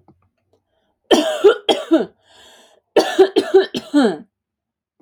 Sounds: Cough